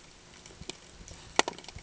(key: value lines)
label: ambient
recorder: HydroMoth